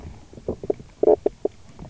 {"label": "biophony, knock croak", "recorder": "SoundTrap 300"}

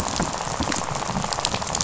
{"label": "biophony, rattle", "recorder": "SoundTrap 500"}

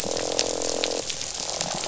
{"label": "biophony, croak", "recorder": "SoundTrap 500"}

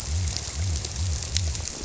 {"label": "biophony", "recorder": "SoundTrap 300"}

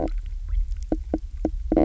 {"label": "biophony, knock croak", "recorder": "SoundTrap 300"}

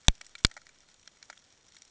{"label": "ambient", "recorder": "HydroMoth"}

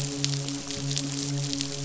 {"label": "biophony, midshipman", "recorder": "SoundTrap 500"}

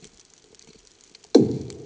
{"label": "anthrophony, bomb", "recorder": "HydroMoth"}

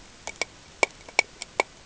{"label": "ambient", "recorder": "HydroMoth"}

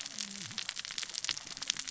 {"label": "biophony, cascading saw", "recorder": "SoundTrap 600 or HydroMoth"}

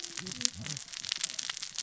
{"label": "biophony, cascading saw", "recorder": "SoundTrap 600 or HydroMoth"}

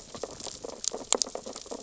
{"label": "biophony, sea urchins (Echinidae)", "recorder": "SoundTrap 600 or HydroMoth"}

